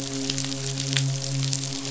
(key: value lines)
label: biophony, midshipman
recorder: SoundTrap 500